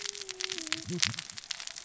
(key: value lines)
label: biophony, cascading saw
recorder: SoundTrap 600 or HydroMoth